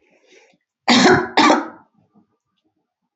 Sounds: Cough